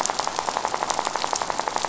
{"label": "biophony, rattle", "recorder": "SoundTrap 500"}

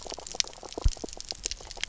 {"label": "biophony, knock croak", "recorder": "SoundTrap 300"}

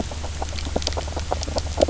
{"label": "biophony, knock croak", "recorder": "SoundTrap 300"}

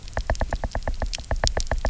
{"label": "biophony, knock", "recorder": "SoundTrap 300"}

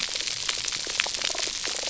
{"label": "biophony", "recorder": "SoundTrap 300"}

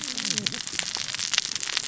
{"label": "biophony, cascading saw", "recorder": "SoundTrap 600 or HydroMoth"}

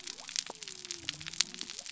{"label": "biophony", "recorder": "SoundTrap 300"}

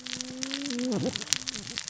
{"label": "biophony, cascading saw", "recorder": "SoundTrap 600 or HydroMoth"}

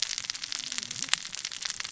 {"label": "biophony, cascading saw", "recorder": "SoundTrap 600 or HydroMoth"}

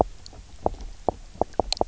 {"label": "biophony, knock", "recorder": "SoundTrap 300"}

